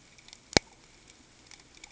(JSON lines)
{"label": "ambient", "recorder": "HydroMoth"}